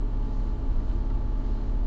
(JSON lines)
{"label": "anthrophony, boat engine", "recorder": "SoundTrap 300"}